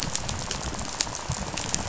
{"label": "biophony, rattle", "recorder": "SoundTrap 500"}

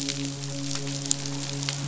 {"label": "biophony, midshipman", "recorder": "SoundTrap 500"}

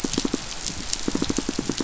{"label": "biophony, pulse", "recorder": "SoundTrap 500"}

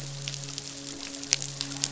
{"label": "biophony, midshipman", "recorder": "SoundTrap 500"}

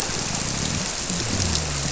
{"label": "biophony", "recorder": "SoundTrap 300"}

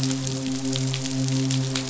{"label": "biophony, midshipman", "recorder": "SoundTrap 500"}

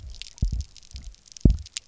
{"label": "biophony, double pulse", "recorder": "SoundTrap 300"}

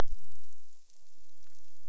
{"label": "biophony", "recorder": "SoundTrap 300"}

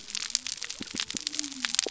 {"label": "biophony", "recorder": "SoundTrap 300"}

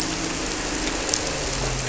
{"label": "anthrophony, boat engine", "recorder": "SoundTrap 300"}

